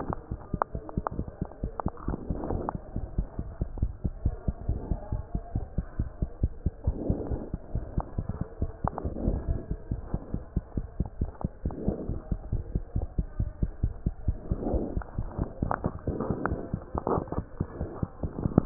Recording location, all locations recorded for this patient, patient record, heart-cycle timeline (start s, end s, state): pulmonary valve (PV)
aortic valve (AV)+pulmonary valve (PV)+tricuspid valve (TV)
#Age: Child
#Sex: Female
#Height: 85.0 cm
#Weight: 11.9 kg
#Pregnancy status: False
#Murmur: Absent
#Murmur locations: nan
#Most audible location: nan
#Systolic murmur timing: nan
#Systolic murmur shape: nan
#Systolic murmur grading: nan
#Systolic murmur pitch: nan
#Systolic murmur quality: nan
#Diastolic murmur timing: nan
#Diastolic murmur shape: nan
#Diastolic murmur grading: nan
#Diastolic murmur pitch: nan
#Diastolic murmur quality: nan
#Outcome: Normal
#Campaign: 2015 screening campaign
0.00	1.46	unannotated
1.46	1.62	diastole
1.62	1.72	S1
1.72	1.85	systole
1.85	1.94	S2
1.94	2.06	diastole
2.06	2.16	S1
2.16	2.28	systole
2.28	2.36	S2
2.36	2.52	diastole
2.52	2.62	S1
2.62	2.73	systole
2.73	2.80	S2
2.80	2.94	diastole
2.94	3.04	S1
3.04	3.17	systole
3.17	3.24	S2
3.24	3.38	diastole
3.38	3.42	S1
3.42	3.58	systole
3.58	3.66	S2
3.66	3.80	diastole
3.80	3.89	S1
3.89	4.03	systole
4.03	4.12	S2
4.12	4.24	diastole
4.24	4.34	S1
4.34	4.47	systole
4.47	4.56	S2
4.56	4.67	diastole
4.67	4.80	S1
4.80	4.90	systole
4.90	5.00	S2
5.00	5.12	diastole
5.12	5.20	S1
5.20	5.33	systole
5.33	5.42	S2
5.42	5.54	diastole
5.54	5.62	S1
5.62	5.76	systole
5.76	5.86	S2
5.86	5.98	diastole
5.98	6.08	S1
6.08	6.20	systole
6.20	6.30	S2
6.30	6.41	diastole
6.41	6.52	S1
6.52	6.64	systole
6.64	6.74	S2
6.74	6.84	diastole
6.84	6.96	S1
6.96	7.08	systole
7.08	7.17	S2
7.17	7.30	diastole
7.30	18.66	unannotated